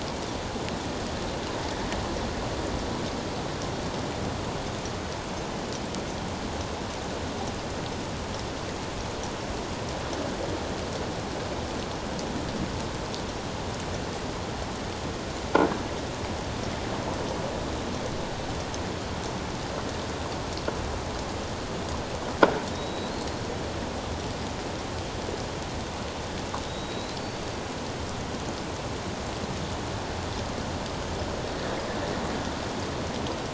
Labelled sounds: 22.7	23.4	killer whale, offshore, 3.7 to 4.3 kHz
26.7	27.4	killer whale, offshore, 3.7 to 4.6 kHz

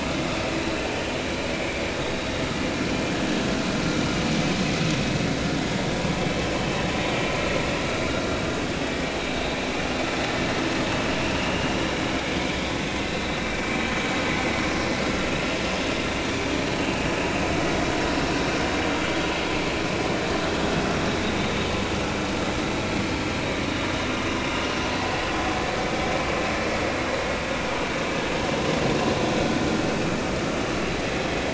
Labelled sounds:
2.0	2.3	vessel noise, 3.6 to 3.9 kHz
11.4	11.7	vessel noise, 2.8 to 2.9 kHz
13.4	13.9	vessel noise, 2.2 to 2.4 kHz
24.5	24.8	vessel noise, 2.7 to 2.9 kHz

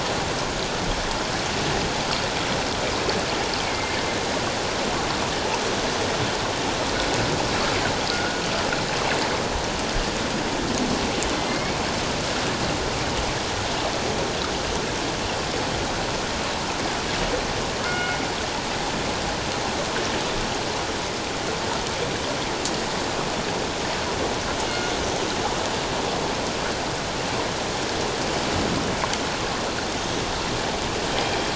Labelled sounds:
3.6	4.0	killer whale, northern resident, A clan, AA subclan, 2.1 to 2.3 kHz
8.1	8.4	killer whale, northern resident, G clan, 1.3 to 1.5 kHz
11.4	11.8	killer whale, northern resident, A clan, AA subclan, 2.0 to 2.3 kHz
17.8	18.2	killer whale, northern resident, G clan, call N24ii, 1.3 to 2.2 kHz
31.1	31.5	killer whale, northern resident, G clan, 3.1 to 3.2 kHz

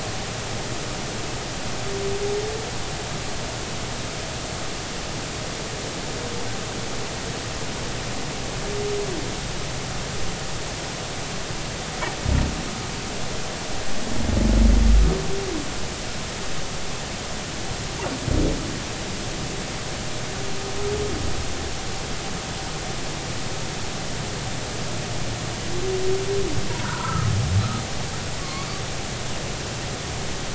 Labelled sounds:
26.7	27.3	humpback whale, 0.90 to 1.6 kHz
28.4	28.7	humpback whale, 1.0 to 1.2 kHz

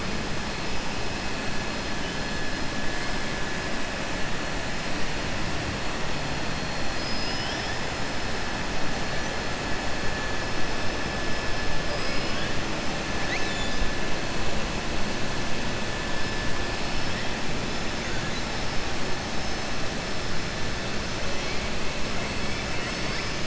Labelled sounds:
11.8	12.5	killer whale, southern resident, 1.1 to 5.5 kHz
13.2	13.8	killer whale, southern resident, 1.8 to 5.0 kHz

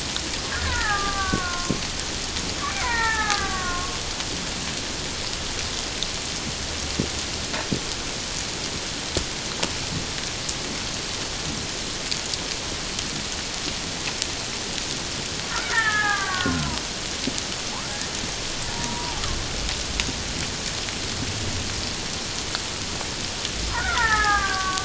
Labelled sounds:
0.6	1.7	killer whale, Bigg's (transient), 0.78 to 2.0 kHz
2.6	3.9	killer whale, Bigg's (transient), 0.78 to 2.4 kHz
15.5	16.8	killer whale, Bigg's (transient), 0.91 to 2.3 kHz
18.7	19.2	killer whale, Bigg's (transient), 0.78 to 1.0 kHz
23.7	24.8	killer whale, Bigg's (transient), 0.78 to 2.3 kHz

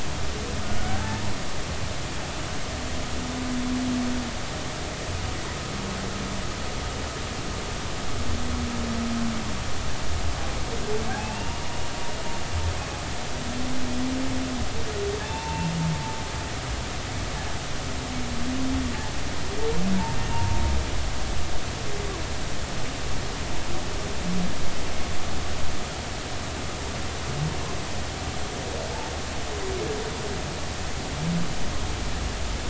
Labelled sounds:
0.8	1.2	humpback whale, 0.80 to 1.6 kHz
11.1	11.6	humpback whale, 0.80 to 2.8 kHz
15.2	15.7	humpback whale, 0.80 to 0.99 kHz
20.2	20.6	humpback whale, 0.86 to 2.8 kHz

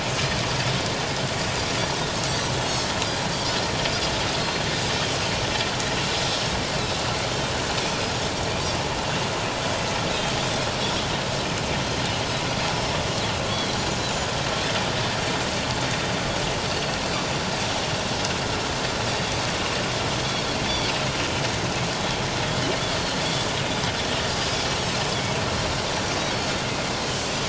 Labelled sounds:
2.3	2.5	Pacific white-sided dolphin, 7.5 to 7.8 kHz
7.8	8.0	Pacific white-sided dolphin, 2.3 to 2.6 kHz
13.5	13.7	Pacific white-sided dolphin, 3.2 to 3.4 kHz
20.2	20.4	Pacific white-sided dolphin, 3.2 to 3.4 kHz
22.9	23.2	Pacific white-sided dolphin, 4.2 to 4.5 kHz
25.8	26.6	Pacific white-sided dolphin, 4.3 to 5.9 kHz

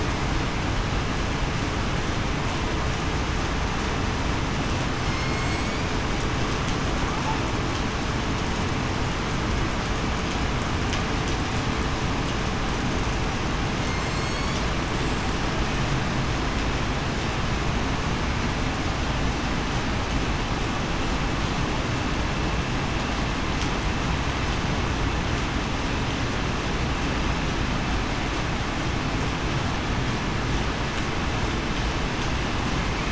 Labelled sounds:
5.0	5.5	killer whale, southern resident, 2.1 to 5.4 kHz
13.9	14.5	killer whale, southern resident, 7.4 to 7.8 kHz

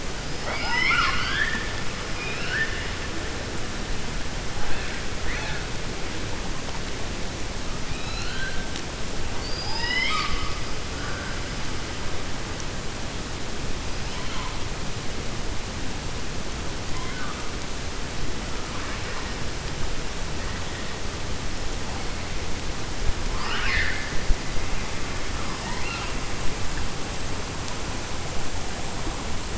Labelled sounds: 0.3	1.7	killer whale, 0.71 to 5.8 kHz
7.8	8.6	killer whale, 1.4 to 4.4 kHz
9.3	10.6	killer whale, 0.90 to 7.3 kHz
16.9	17.4	killer whale, 1.0 to 3.0 kHz
23.3	24.1	killer whale, 0.92 to 5.4 kHz

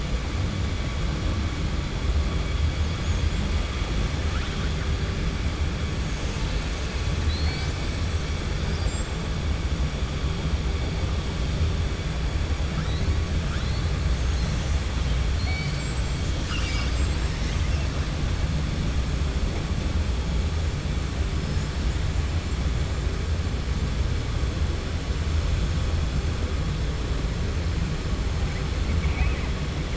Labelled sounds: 7.1	7.8	killer whale, 1.5 to 7.7 kHz
15.3	17.3	killer whale, 1.2 to 8.0 kHz
28.9	29.5	killer whale, 0.71 to 2.9 kHz

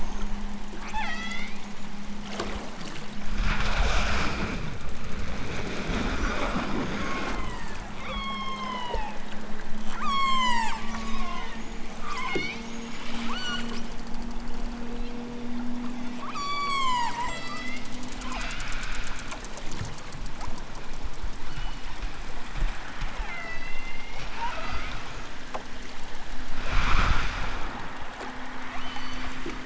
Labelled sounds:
0.8	1.6	killer whale, southern Alaska resident, 0.46 to 8.0 kHz
6.9	9.2	killer whale, southern Alaska resident, 0.46 to 8.0 kHz
9.9	12.7	killer whale, southern Alaska resident, 0.46 to 8.0 kHz
13.2	13.8	killer whale, southern Alaska resident, 0.92 to 8.0 kHz
14.8	15.2	killer whale, southern Alaska resident, 1.8 to 4.5 kHz
16.3	18.7	killer whale, southern Alaska resident, 0.46 to 8.0 kHz
21.4	22.0	killer whale, southern Alaska resident, 1.2 to 4.3 kHz
23.1	25.2	killer whale, southern Alaska resident, 0.23 to 7.0 kHz
28.7	29.5	killer whale, southern Alaska resident, 2.4 to 7.6 kHz

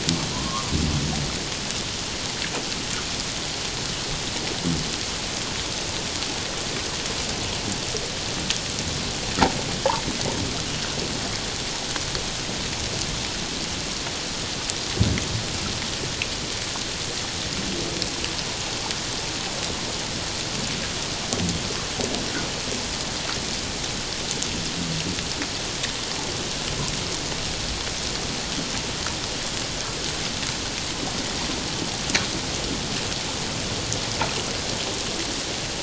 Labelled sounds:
0.3	0.7	humpback whale, 0.94 to 1.2 kHz

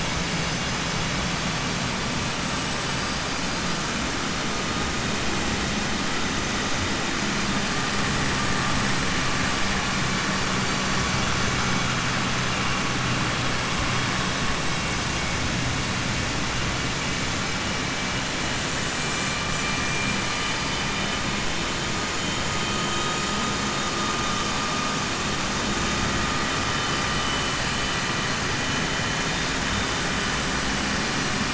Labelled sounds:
19.5	21.1	vessel noise, 1.8 to 5.3 kHz
22.6	23.4	vessel noise, 3.1 to 5.0 kHz

